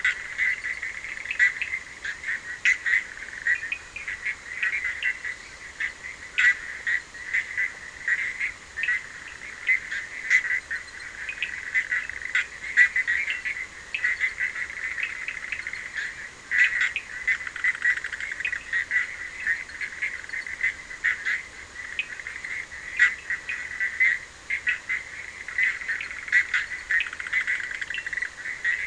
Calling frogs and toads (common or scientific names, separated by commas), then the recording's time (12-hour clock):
Bischoff's tree frog, Cochran's lime tree frog
2:15am